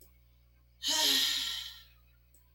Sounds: Sigh